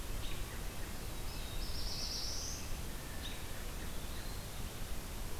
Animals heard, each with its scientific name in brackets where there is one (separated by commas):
American Robin (Turdus migratorius), Black-throated Blue Warbler (Setophaga caerulescens), Eastern Wood-Pewee (Contopus virens), Red-breasted Nuthatch (Sitta canadensis)